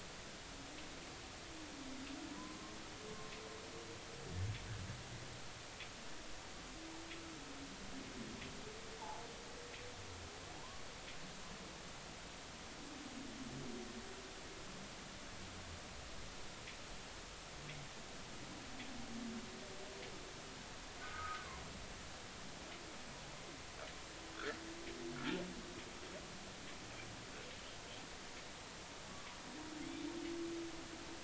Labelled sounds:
2.4	2.7	humpback whale, 0.96 to 1.1 kHz
9.0	9.2	humpback whale, 0.80 to 1.0 kHz
10.6	10.8	humpback whale, 0.80 to 1.2 kHz
21.0	21.5	humpback whale, 1.1 to 1.7 kHz
25.2	25.4	humpback whale, 1.3 to 1.5 kHz
29.8	30.1	humpback whale, 3.2 to 3.8 kHz

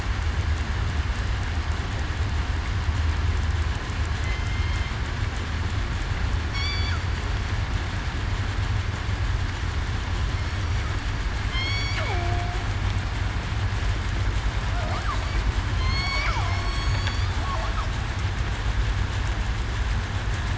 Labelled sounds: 4.2	4.9	killer whale, southern resident, 2.0 to 2.2 kHz
6.5	6.9	killer whale, southern resident, 2.2 to 4.7 kHz
11.5	12.6	killer whale, southern resident, 0.66 to 5.8 kHz
15.8	16.2	killer whale, southern resident, 3.1 to 3.4 kHz
16.5	16.9	killer whale, southern resident, 5.2 to 5.6 kHz

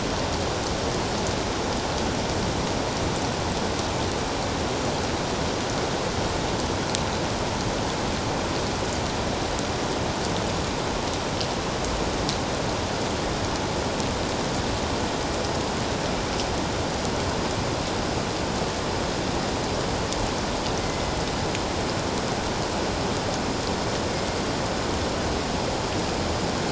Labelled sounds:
20.8	21.1	killer whale, northern resident, A clan, 2.0 to 2.1 kHz
24.1	24.4	killer whale, northern resident, A clan, 2.1 to 2.2 kHz

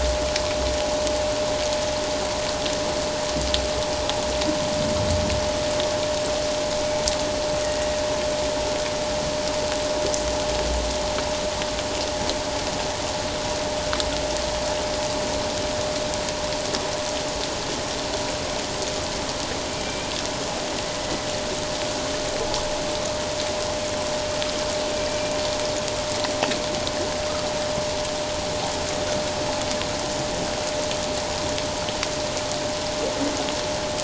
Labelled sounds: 7.6	7.9	humpback whale, 1.8 to 2.0 kHz

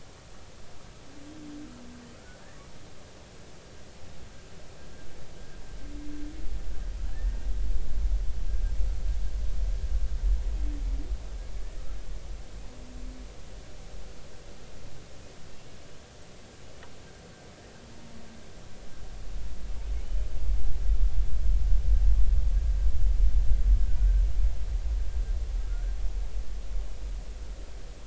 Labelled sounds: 2.2	2.4	humpback whale, 1.3 to 1.5 kHz
7.1	7.5	humpback whale, 1.6 to 1.9 kHz
25.6	25.9	humpback whale, 1.2 to 1.6 kHz

